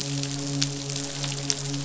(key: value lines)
label: biophony, midshipman
recorder: SoundTrap 500